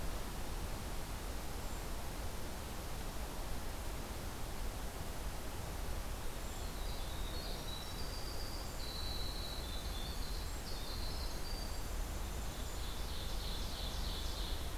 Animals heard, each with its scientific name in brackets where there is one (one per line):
Winter Wren (Troglodytes hiemalis)
Brown Creeper (Certhia americana)
Ovenbird (Seiurus aurocapilla)